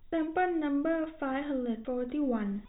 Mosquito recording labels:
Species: no mosquito; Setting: cup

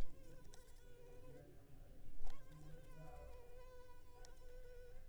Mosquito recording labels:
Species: Anopheles arabiensis; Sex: female; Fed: unfed; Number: one; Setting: cup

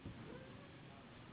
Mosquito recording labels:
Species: Anopheles gambiae s.s.; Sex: female; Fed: unfed; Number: one; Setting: insect culture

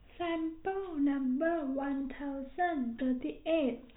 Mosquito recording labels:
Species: no mosquito; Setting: cup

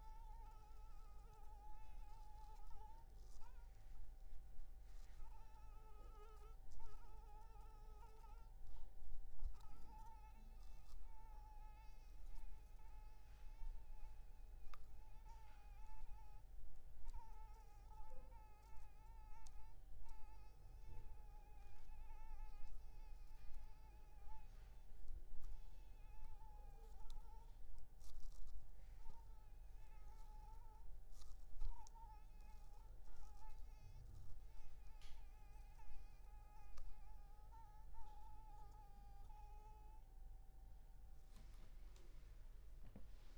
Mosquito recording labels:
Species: Anopheles maculipalpis; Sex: female; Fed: unfed; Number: one; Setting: cup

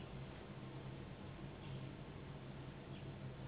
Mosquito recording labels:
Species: Anopheles gambiae s.s.; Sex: female; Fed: unfed; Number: one; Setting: insect culture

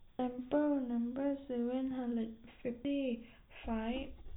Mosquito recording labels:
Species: no mosquito; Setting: cup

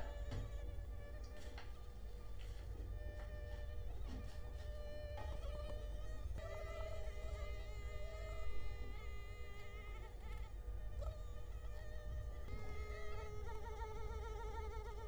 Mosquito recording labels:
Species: Culex quinquefasciatus; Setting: cup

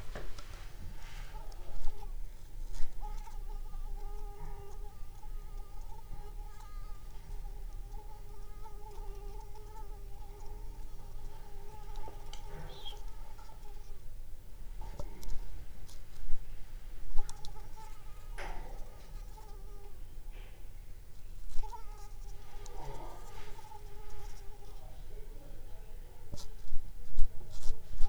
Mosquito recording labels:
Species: Anopheles squamosus; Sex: female; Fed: unfed; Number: one; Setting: cup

